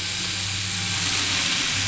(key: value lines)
label: anthrophony, boat engine
recorder: SoundTrap 500